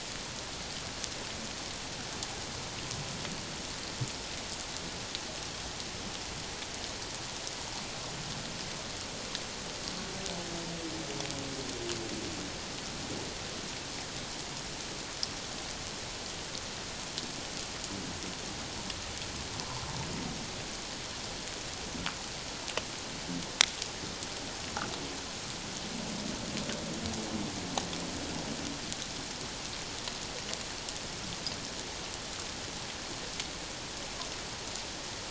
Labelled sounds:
19.6	19.9	humpback whale, 0.84 to 1.1 kHz

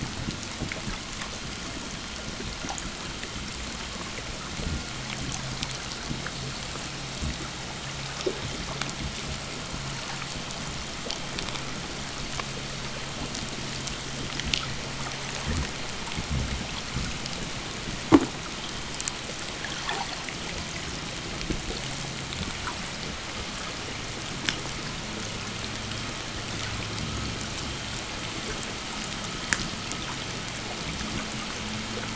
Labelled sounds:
1.2	14.2	vessel noise, 1.1 to 3.5 kHz
15.2	17.2	fish, 0 to 0.44 kHz
19.4	20.5	abiotic sound, 0.23 to 5.5 kHz
24.2	24.8	undetermined biological sound, 0.86 to 8.0 kHz

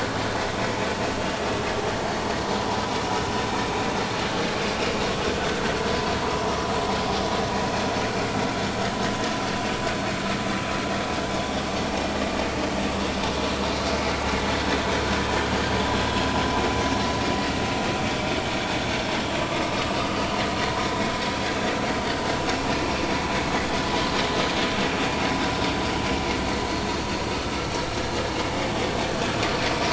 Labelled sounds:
19.4	20.2	vessel noise, 1.1 to 4.8 kHz

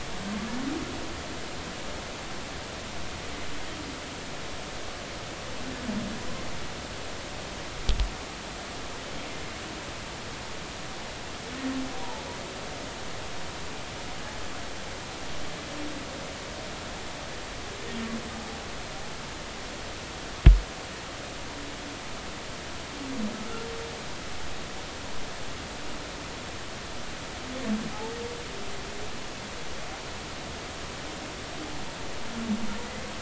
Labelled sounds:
32.8	33.1	humpback whale, 1.9 to 2.2 kHz

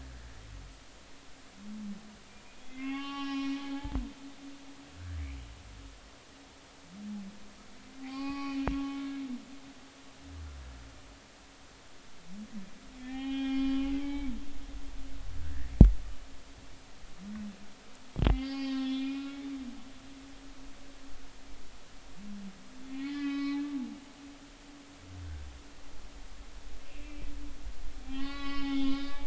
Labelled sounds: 2.7	3.6	humpback whale, 0.80 to 5.6 kHz
8.0	9.1	humpback whale, 0.80 to 4.9 kHz
12.9	14.3	humpback whale, 0.80 to 5.4 kHz
18.3	19.4	humpback whale, 0.80 to 5.5 kHz
19.9	20.4	humpback whale, 2.3 to 2.6 kHz
22.9	23.6	humpback whale, 0.80 to 5.1 kHz
26.9	29.2	humpback whale, 0.80 to 5.1 kHz

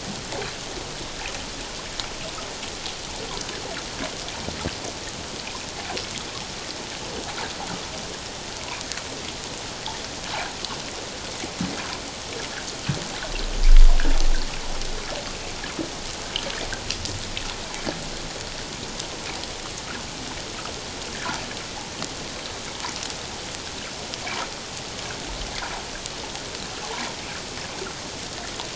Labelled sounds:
21.1	21.4	water noise, 1.3 to 1.8 kHz

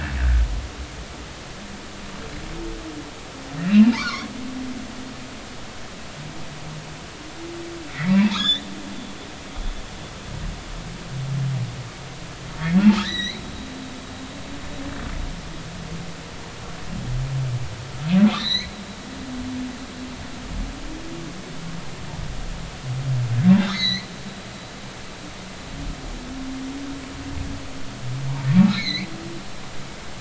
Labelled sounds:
3.6	4.3	humpback whale, 0.83 to 4.7 kHz
7.9	8.7	humpback whale, 1.5 to 4.0 kHz
13.0	13.4	humpback whale, 1.6 to 6.1 kHz
18.3	18.8	humpback whale, 1.7 to 6.6 kHz
23.7	24.1	humpback whale, 1.7 to 4.6 kHz
28.7	29.1	humpback whale, 1.9 to 4.4 kHz

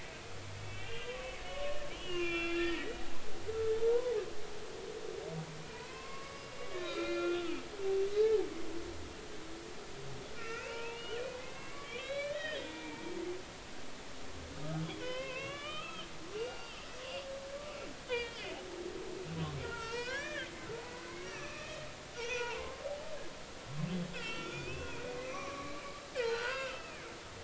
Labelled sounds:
0.0	3.1	humpback whale, 1.1 to 3.5 kHz
3.7	4.1	humpback whale, 0.83 to 1.1 kHz
5.7	7.7	humpback whale, 0.90 to 5.0 kHz
8.1	8.4	humpback whale, 0.83 to 0.93 kHz
10.3	13.0	humpback whale, 0.86 to 4.2 kHz
15.0	17.3	humpback whale, 0.96 to 5.0 kHz
18.1	18.5	humpback whale, 1.8 to 3.6 kHz
19.6	20.5	humpback whale, 0.86 to 3.7 kHz
21.1	21.9	humpback whale, 1.1 to 3.1 kHz
22.1	22.8	humpback whale, 0.83 to 6.2 kHz
24.1	27.0	humpback whale, 0.93 to 6.0 kHz

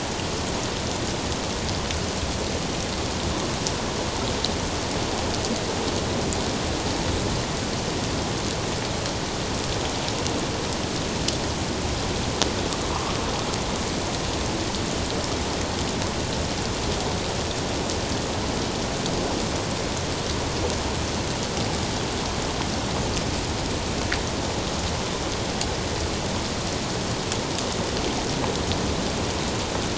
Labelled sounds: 12.9	13.2	water noise, 0.94 to 1.3 kHz

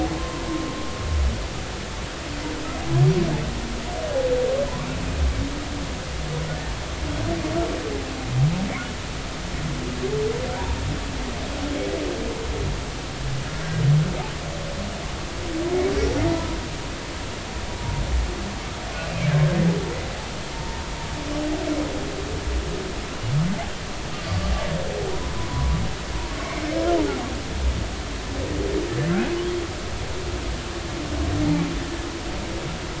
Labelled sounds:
16.3	16.6	humpback whale, 0.90 to 1.1 kHz
20.5	20.8	humpback whale, 0.86 to 1.0 kHz
25.5	25.8	humpback whale, 0.96 to 1.2 kHz
26.3	26.5	humpback whale, 1.0 to 1.2 kHz

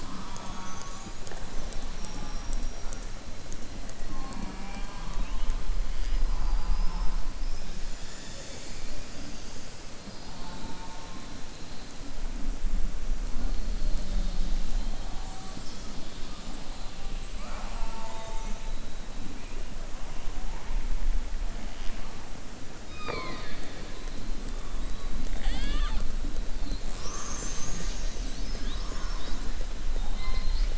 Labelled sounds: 22.8	23.8	killer whale, southern resident, 0.19 to 5.1 kHz

